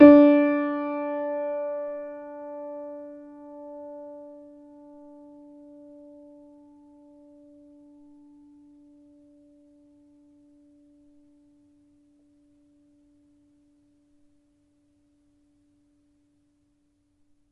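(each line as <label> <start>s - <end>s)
A sustained piano note gradually diminishes in volume. 0.0s - 17.4s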